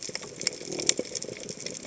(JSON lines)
{"label": "biophony", "recorder": "HydroMoth"}